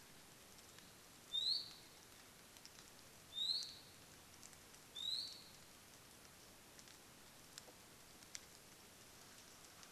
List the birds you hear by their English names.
Iiwi